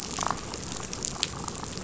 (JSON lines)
{"label": "biophony, damselfish", "recorder": "SoundTrap 500"}